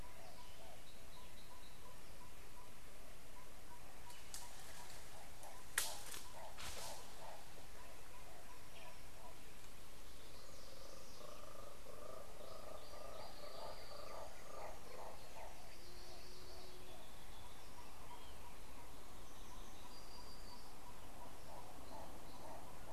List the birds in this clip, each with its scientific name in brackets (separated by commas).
Yellow-rumped Tinkerbird (Pogoniulus bilineatus), Hartlaub's Turaco (Tauraco hartlaubi)